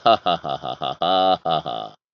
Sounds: Laughter